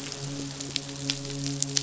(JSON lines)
{"label": "biophony, midshipman", "recorder": "SoundTrap 500"}